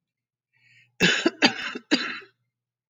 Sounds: Cough